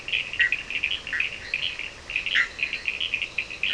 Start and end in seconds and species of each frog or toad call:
0.0	2.9	Leptodactylus latrans
0.0	3.7	Boana leptolineata
0.0	3.7	Sphaenorhynchus surdus
0.2	2.7	Boana bischoffi
4:30am

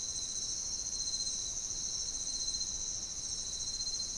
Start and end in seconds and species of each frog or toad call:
none
~2am

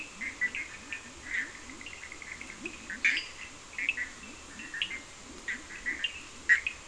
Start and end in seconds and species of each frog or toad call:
0.0	6.7	Leptodactylus latrans
0.0	6.8	Boana bischoffi
0.0	6.8	Sphaenorhynchus surdus
2.8	3.5	Dendropsophus minutus
~3am

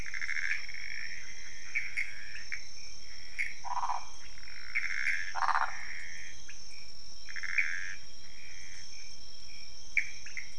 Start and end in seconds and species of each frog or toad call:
0.0	6.3	Pithecopus azureus
2.5	2.7	Leptodactylus podicipinus
3.6	4.1	Phyllomedusa sauvagii
4.2	4.3	Leptodactylus podicipinus
5.3	5.8	Phyllomedusa sauvagii
6.5	6.6	Leptodactylus podicipinus
7.3	8.9	Pithecopus azureus
9.9	10.5	Pithecopus azureus
~1am

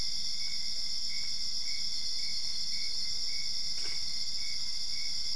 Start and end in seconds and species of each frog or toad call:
none
2am

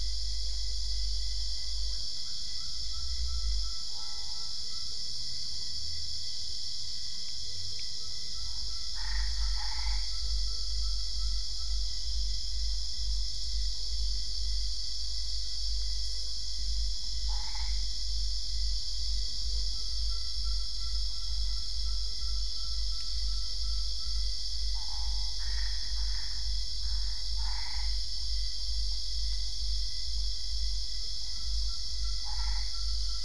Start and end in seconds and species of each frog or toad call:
8.9	10.2	Boana albopunctata
17.2	17.8	Boana albopunctata
24.7	27.9	Boana albopunctata
32.2	32.8	Boana albopunctata
1am

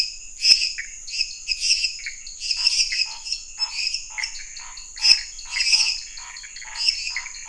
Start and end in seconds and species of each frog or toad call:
0.0	7.4	Dendropsophus minutus
0.0	7.4	Pithecopus azureus
1.0	7.4	Dendropsophus nanus
2.5	7.4	Scinax fuscovarius
~11pm

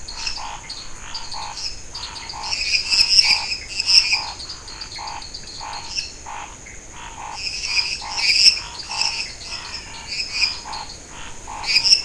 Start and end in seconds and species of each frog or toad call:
0.0	12.0	Scinax fuscovarius
0.1	6.3	Dendropsophus nanus
2.0	3.6	Physalaemus albonotatus
2.4	4.3	Dendropsophus minutus
5.9	6.1	Dendropsophus minutus
7.3	10.5	Dendropsophus minutus
8.7	11.1	Dendropsophus nanus
11.1	12.0	Physalaemus albonotatus
~9pm

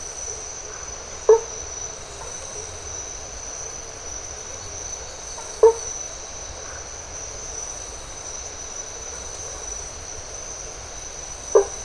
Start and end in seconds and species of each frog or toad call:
1.1	1.6	Boana faber
5.3	5.9	Boana faber
6.6	6.9	Phyllomedusa distincta
11.4	11.8	Boana faber
~4am

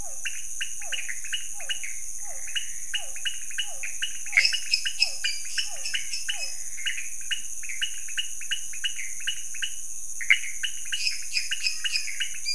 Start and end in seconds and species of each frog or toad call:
0.0	6.8	Physalaemus cuvieri
0.0	12.5	Leptodactylus podicipinus
0.2	12.5	Pithecopus azureus
4.2	6.8	Dendropsophus minutus
10.8	12.5	Dendropsophus minutus
11.6	12.2	Physalaemus albonotatus
~2am

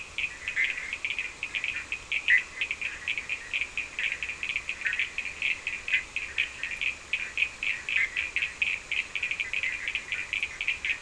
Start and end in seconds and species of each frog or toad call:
0.0	11.0	Sphaenorhynchus surdus
0.5	8.1	Boana bischoffi
~3am

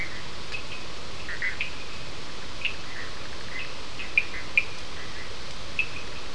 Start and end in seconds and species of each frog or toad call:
1.2	1.6	Boana bischoffi
1.6	6.3	Sphaenorhynchus surdus
2.8	5.4	Boana bischoffi
4:30am

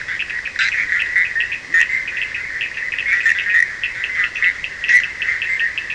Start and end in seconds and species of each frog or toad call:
0.0	5.9	Boana bischoffi
0.0	5.9	Sphaenorhynchus surdus
0.9	1.1	Boana leptolineata
1.6	1.8	Leptodactylus latrans
~3am

